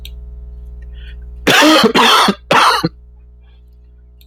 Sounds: Cough